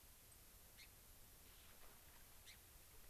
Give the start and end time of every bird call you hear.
[0.25, 0.35] unidentified bird
[0.75, 0.85] Gray-crowned Rosy-Finch (Leucosticte tephrocotis)
[2.45, 2.55] Gray-crowned Rosy-Finch (Leucosticte tephrocotis)

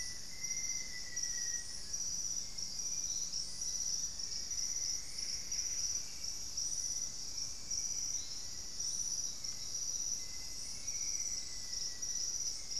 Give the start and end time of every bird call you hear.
[0.00, 1.98] Black-faced Antthrush (Formicarius analis)
[0.00, 12.80] Hauxwell's Thrush (Turdus hauxwelli)
[3.98, 5.98] Plumbeous Antbird (Myrmelastes hyperythrus)
[4.98, 6.08] Buff-breasted Wren (Cantorchilus leucotis)
[9.88, 12.28] Black-faced Antthrush (Formicarius analis)

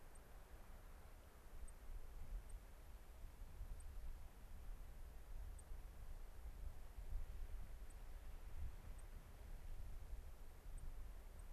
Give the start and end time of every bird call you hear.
[0.11, 0.21] White-crowned Sparrow (Zonotrichia leucophrys)
[1.61, 1.71] White-crowned Sparrow (Zonotrichia leucophrys)
[2.41, 2.51] White-crowned Sparrow (Zonotrichia leucophrys)
[3.71, 3.91] White-crowned Sparrow (Zonotrichia leucophrys)
[5.51, 5.71] White-crowned Sparrow (Zonotrichia leucophrys)
[7.81, 8.01] White-crowned Sparrow (Zonotrichia leucophrys)
[8.91, 9.11] White-crowned Sparrow (Zonotrichia leucophrys)
[10.71, 10.91] White-crowned Sparrow (Zonotrichia leucophrys)
[11.31, 11.41] White-crowned Sparrow (Zonotrichia leucophrys)

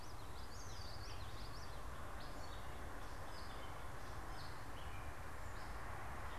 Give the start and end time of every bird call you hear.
[0.00, 1.98] Common Yellowthroat (Geothlypis trichas)
[0.00, 5.67] Gray Catbird (Dumetella carolinensis)

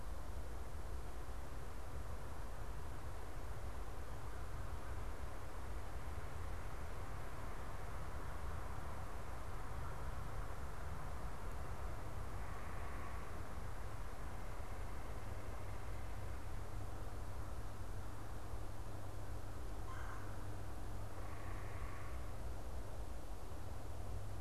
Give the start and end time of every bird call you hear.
[12.27, 13.67] unidentified bird
[19.67, 20.17] Red-bellied Woodpecker (Melanerpes carolinus)
[20.87, 22.47] unidentified bird

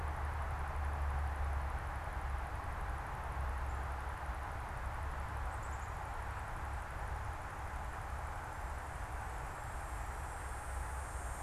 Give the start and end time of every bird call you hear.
[5.33, 6.13] Black-capped Chickadee (Poecile atricapillus)

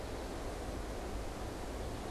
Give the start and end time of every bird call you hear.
[0.00, 2.11] American Goldfinch (Spinus tristis)

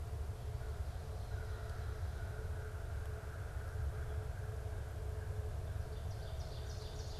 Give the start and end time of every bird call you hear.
[4.40, 7.19] American Crow (Corvus brachyrhynchos)
[5.70, 7.19] Ovenbird (Seiurus aurocapilla)

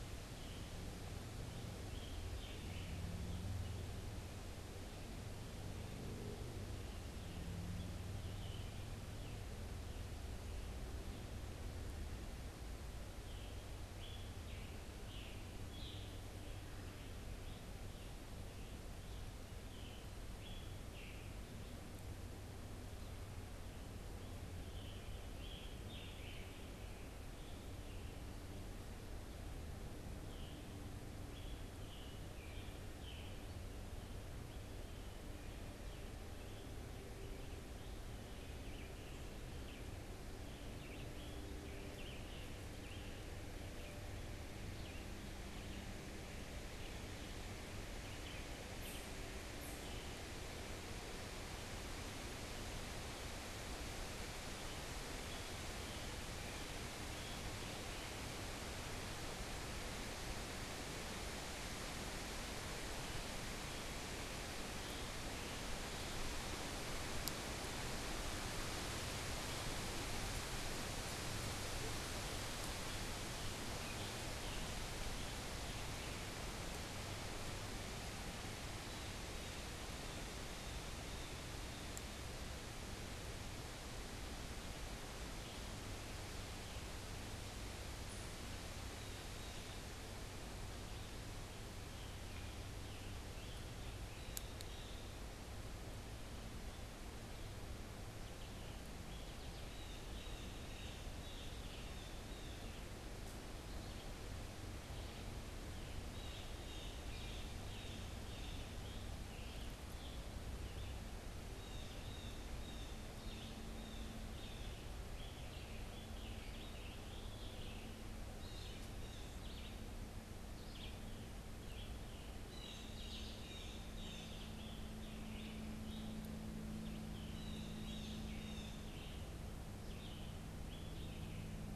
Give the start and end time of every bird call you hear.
[0.00, 46.23] Scarlet Tanager (Piranga olivacea)
[33.83, 46.13] Red-eyed Vireo (Vireo olivaceus)
[47.73, 51.03] Red-eyed Vireo (Vireo olivaceus)
[54.43, 102.93] Scarlet Tanager (Piranga olivacea)
[103.53, 114.73] Red-eyed Vireo (Vireo olivaceus)
[105.83, 108.73] Blue Jay (Cyanocitta cristata)
[106.83, 131.76] Scarlet Tanager (Piranga olivacea)
[111.43, 114.83] Blue Jay (Cyanocitta cristata)
[116.33, 131.76] Red-eyed Vireo (Vireo olivaceus)
[122.13, 129.03] Blue Jay (Cyanocitta cristata)

